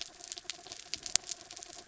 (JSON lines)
{"label": "anthrophony, mechanical", "recorder": "SoundTrap 300"}